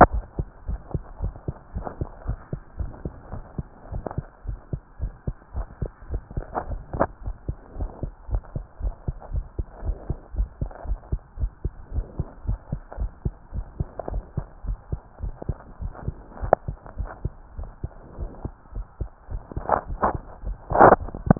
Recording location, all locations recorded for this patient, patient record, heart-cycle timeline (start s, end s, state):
tricuspid valve (TV)
aortic valve (AV)+pulmonary valve (PV)+tricuspid valve (TV)+mitral valve (MV)
#Age: Child
#Sex: Male
#Height: 123.0 cm
#Weight: 23.9 kg
#Pregnancy status: False
#Murmur: Absent
#Murmur locations: nan
#Most audible location: nan
#Systolic murmur timing: nan
#Systolic murmur shape: nan
#Systolic murmur grading: nan
#Systolic murmur pitch: nan
#Systolic murmur quality: nan
#Diastolic murmur timing: nan
#Diastolic murmur shape: nan
#Diastolic murmur grading: nan
#Diastolic murmur pitch: nan
#Diastolic murmur quality: nan
#Outcome: Abnormal
#Campaign: 2015 screening campaign
0.00	0.66	unannotated
0.66	0.80	S1
0.80	0.92	systole
0.92	1.02	S2
1.02	1.22	diastole
1.22	1.34	S1
1.34	1.46	systole
1.46	1.56	S2
1.56	1.74	diastole
1.74	1.86	S1
1.86	2.00	systole
2.00	2.12	S2
2.12	2.28	diastole
2.28	2.40	S1
2.40	2.52	systole
2.52	2.62	S2
2.62	2.78	diastole
2.78	2.92	S1
2.92	3.02	systole
3.02	3.14	S2
3.14	3.32	diastole
3.32	3.44	S1
3.44	3.58	systole
3.58	3.68	S2
3.68	3.88	diastole
3.88	4.04	S1
4.04	4.16	systole
4.16	4.28	S2
4.28	4.46	diastole
4.46	4.60	S1
4.60	4.72	systole
4.72	4.82	S2
4.82	5.00	diastole
5.00	5.14	S1
5.14	5.24	systole
5.24	5.36	S2
5.36	5.54	diastole
5.54	5.68	S1
5.68	5.80	systole
5.80	5.90	S2
5.90	6.08	diastole
6.08	6.22	S1
6.22	6.36	systole
6.36	6.48	S2
6.48	6.66	diastole
6.66	6.82	S1
6.82	6.92	systole
6.92	7.08	S2
7.08	7.24	diastole
7.24	7.36	S1
7.36	7.46	systole
7.46	7.56	S2
7.56	7.76	diastole
7.76	7.90	S1
7.90	8.04	systole
8.04	8.14	S2
8.14	8.30	diastole
8.30	8.42	S1
8.42	8.54	systole
8.54	8.66	S2
8.66	8.82	diastole
8.82	8.94	S1
8.94	9.06	systole
9.06	9.16	S2
9.16	9.32	diastole
9.32	9.46	S1
9.46	9.58	systole
9.58	9.66	S2
9.66	9.82	diastole
9.82	9.96	S1
9.96	10.08	systole
10.08	10.18	S2
10.18	10.34	diastole
10.34	10.50	S1
10.50	10.60	systole
10.60	10.70	S2
10.70	10.86	diastole
10.86	11.00	S1
11.00	11.10	systole
11.10	11.20	S2
11.20	11.38	diastole
11.38	11.52	S1
11.52	11.64	systole
11.64	11.74	S2
11.74	11.92	diastole
11.92	12.06	S1
12.06	12.18	systole
12.18	12.28	S2
12.28	12.46	diastole
12.46	12.60	S1
12.60	12.72	systole
12.72	12.82	S2
12.82	12.98	diastole
12.98	13.12	S1
13.12	13.24	systole
13.24	13.34	S2
13.34	13.54	diastole
13.54	13.66	S1
13.66	13.78	systole
13.78	13.88	S2
13.88	14.08	diastole
14.08	14.24	S1
14.24	14.36	systole
14.36	14.46	S2
14.46	14.66	diastole
14.66	14.80	S1
14.80	14.92	systole
14.92	15.02	S2
15.02	15.22	diastole
15.22	15.36	S1
15.36	15.48	systole
15.48	15.62	S2
15.62	15.80	diastole
15.80	15.94	S1
15.94	16.06	systole
16.06	16.16	S2
16.16	16.36	diastole
16.36	16.52	S1
16.52	16.66	systole
16.66	16.78	S2
16.78	16.98	diastole
16.98	17.12	S1
17.12	17.24	systole
17.24	17.38	S2
17.38	17.56	diastole
17.56	17.70	S1
17.70	17.82	systole
17.82	17.94	S2
17.94	18.16	diastole
18.16	18.30	S1
18.30	18.44	systole
18.44	18.54	S2
18.54	18.74	diastole
18.74	18.86	S1
18.86	19.00	systole
19.00	19.12	S2
19.12	19.30	diastole
19.30	19.42	S1
19.42	19.56	systole
19.56	19.66	S2
19.66	21.39	unannotated